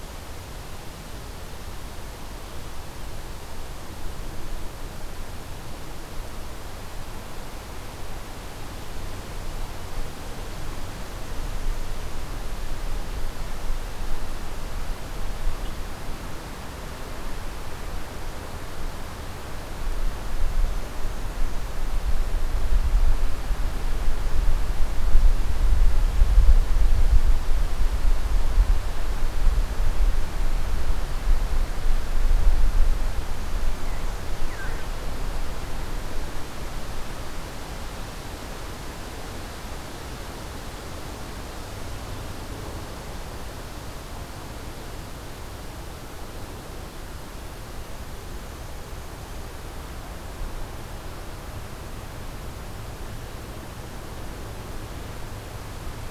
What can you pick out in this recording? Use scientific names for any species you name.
forest ambience